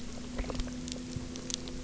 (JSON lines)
{"label": "anthrophony, boat engine", "recorder": "SoundTrap 300"}